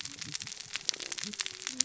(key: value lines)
label: biophony, cascading saw
recorder: SoundTrap 600 or HydroMoth